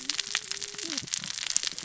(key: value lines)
label: biophony, cascading saw
recorder: SoundTrap 600 or HydroMoth